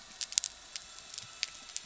{"label": "anthrophony, boat engine", "recorder": "SoundTrap 300"}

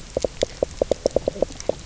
{"label": "biophony, knock croak", "recorder": "SoundTrap 300"}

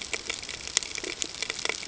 {"label": "ambient", "recorder": "HydroMoth"}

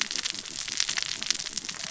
{"label": "biophony, cascading saw", "recorder": "SoundTrap 600 or HydroMoth"}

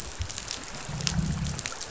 {"label": "biophony, growl", "recorder": "SoundTrap 500"}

